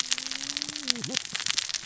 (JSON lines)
{"label": "biophony, cascading saw", "recorder": "SoundTrap 600 or HydroMoth"}